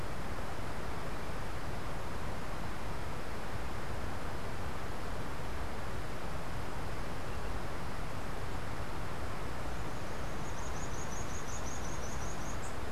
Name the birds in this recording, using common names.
Slate-throated Redstart